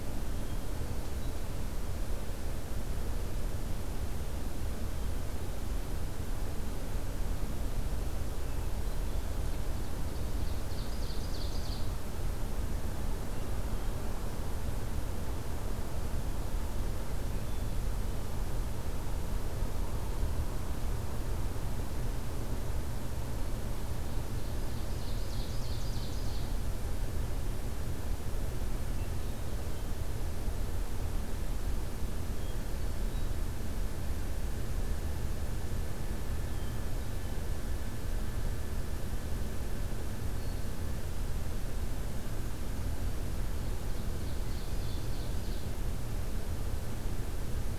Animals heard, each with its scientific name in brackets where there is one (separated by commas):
Hermit Thrush (Catharus guttatus), Ovenbird (Seiurus aurocapilla)